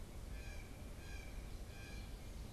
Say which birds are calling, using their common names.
Blue Jay